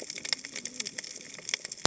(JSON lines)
{"label": "biophony, cascading saw", "recorder": "HydroMoth"}